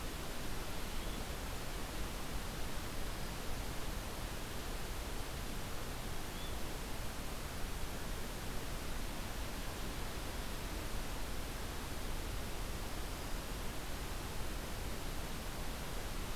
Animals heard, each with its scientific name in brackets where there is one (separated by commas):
Yellow-bellied Flycatcher (Empidonax flaviventris)